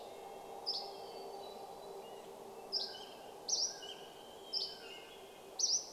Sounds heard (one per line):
airplane
Dusky Flycatcher song
Red-breasted Nuthatch song
Mountain Quail call
Hermit Thrush song